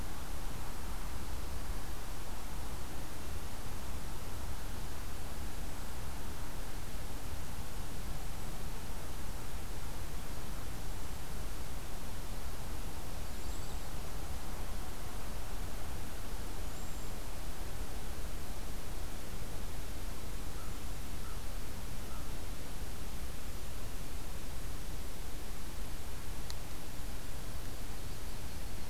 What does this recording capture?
Cedar Waxwing, Yellow-rumped Warbler, American Crow